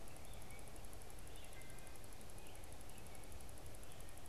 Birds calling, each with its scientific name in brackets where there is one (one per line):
Wood Thrush (Hylocichla mustelina)